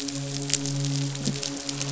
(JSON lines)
{"label": "biophony, midshipman", "recorder": "SoundTrap 500"}